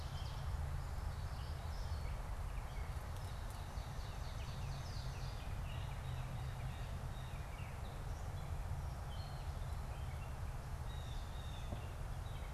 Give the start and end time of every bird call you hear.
0.0s-0.6s: Ovenbird (Seiurus aurocapilla)
0.0s-12.5s: Gray Catbird (Dumetella carolinensis)
3.2s-5.5s: Ovenbird (Seiurus aurocapilla)
5.6s-7.6s: Blue Jay (Cyanocitta cristata)
10.7s-12.5s: Blue Jay (Cyanocitta cristata)

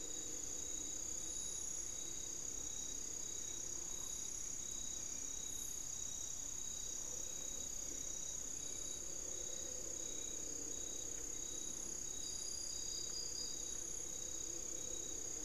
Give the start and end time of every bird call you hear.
0.0s-15.4s: Hauxwell's Thrush (Turdus hauxwelli)

